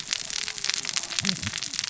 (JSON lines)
{"label": "biophony, cascading saw", "recorder": "SoundTrap 600 or HydroMoth"}